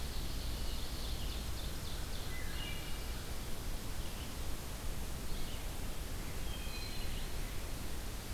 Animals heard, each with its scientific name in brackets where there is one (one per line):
Wood Thrush (Hylocichla mustelina)
Red-eyed Vireo (Vireo olivaceus)
Ovenbird (Seiurus aurocapilla)